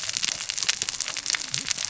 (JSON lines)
{"label": "biophony, cascading saw", "recorder": "SoundTrap 600 or HydroMoth"}